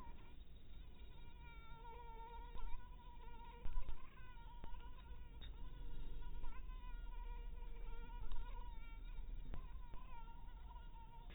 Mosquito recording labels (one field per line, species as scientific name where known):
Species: mosquito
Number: one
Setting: cup